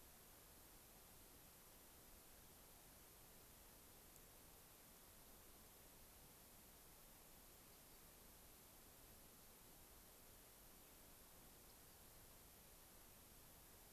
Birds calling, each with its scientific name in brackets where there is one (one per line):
Rock Wren (Salpinctes obsoletus)